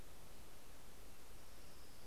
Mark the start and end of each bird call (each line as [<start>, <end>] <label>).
[0.70, 2.06] Orange-crowned Warbler (Leiothlypis celata)